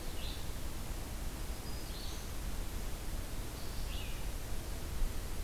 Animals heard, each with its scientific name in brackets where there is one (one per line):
Black-throated Green Warbler (Setophaga virens)
Red-eyed Vireo (Vireo olivaceus)